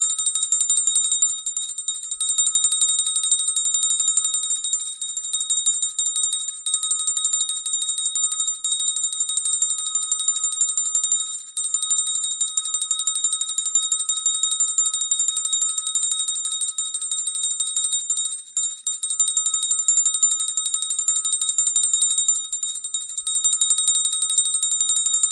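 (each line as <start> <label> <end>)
0.1 A kitchen bell rings constantly. 25.3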